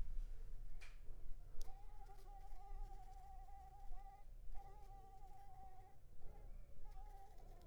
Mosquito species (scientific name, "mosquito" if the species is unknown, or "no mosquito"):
Anopheles arabiensis